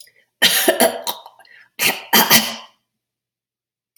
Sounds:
Throat clearing